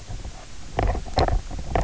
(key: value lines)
label: biophony, knock croak
recorder: SoundTrap 300